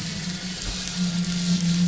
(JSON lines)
{"label": "anthrophony, boat engine", "recorder": "SoundTrap 500"}